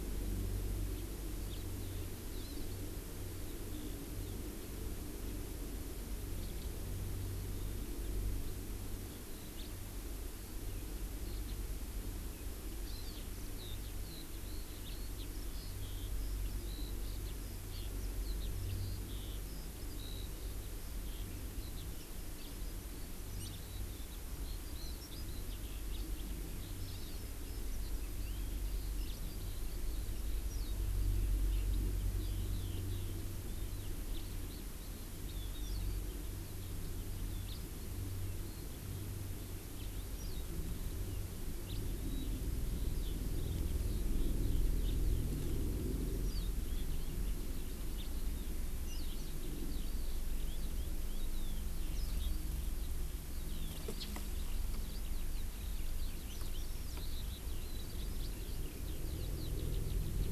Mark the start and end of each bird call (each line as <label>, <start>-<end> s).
House Finch (Haemorhous mexicanus), 0.9-1.0 s
House Finch (Haemorhous mexicanus), 1.5-1.6 s
Hawaii Amakihi (Chlorodrepanis virens), 2.4-2.6 s
Eurasian Skylark (Alauda arvensis), 3.5-4.4 s
House Finch (Haemorhous mexicanus), 6.4-6.7 s
Eurasian Skylark (Alauda arvensis), 9.0-9.5 s
House Finch (Haemorhous mexicanus), 9.6-9.7 s
House Finch (Haemorhous mexicanus), 11.4-11.6 s
Hawaii Amakihi (Chlorodrepanis virens), 12.8-13.2 s
Eurasian Skylark (Alauda arvensis), 13.5-60.3 s
Hawaii Amakihi (Chlorodrepanis virens), 23.3-23.6 s
Hawaii Amakihi (Chlorodrepanis virens), 26.9-27.2 s
House Finch (Haemorhous mexicanus), 37.5-37.6 s
House Finch (Haemorhous mexicanus), 41.6-41.8 s
House Finch (Haemorhous mexicanus), 47.9-48.1 s